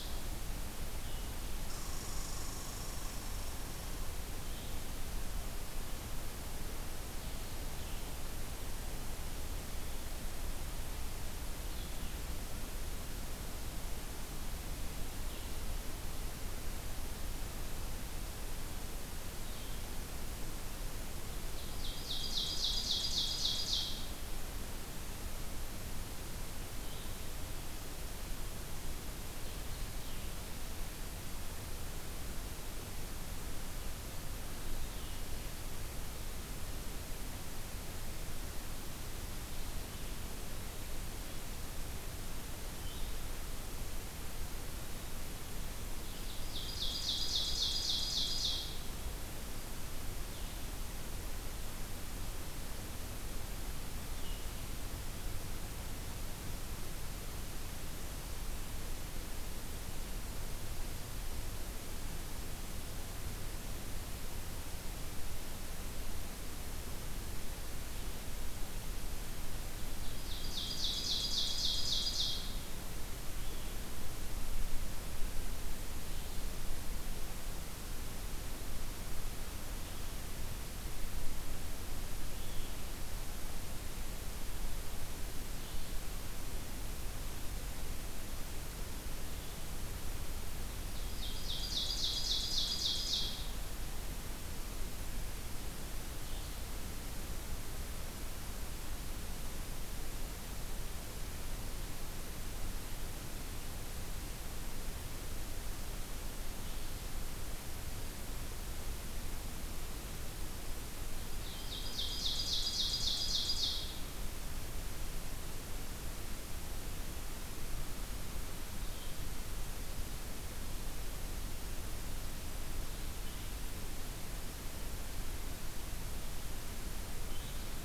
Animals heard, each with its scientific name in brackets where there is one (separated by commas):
Red Squirrel (Tamiasciurus hudsonicus), Blue-headed Vireo (Vireo solitarius), Ovenbird (Seiurus aurocapilla)